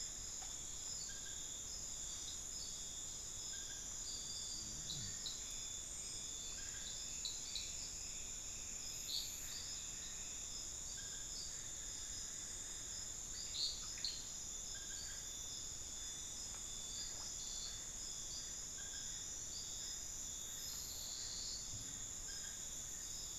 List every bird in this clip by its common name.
Solitary Black Cacique, unidentified bird